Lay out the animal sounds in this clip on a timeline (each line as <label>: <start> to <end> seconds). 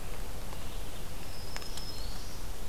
Black-throated Green Warbler (Setophaga virens): 1.2 to 2.5 seconds